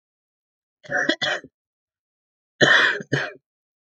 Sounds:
Laughter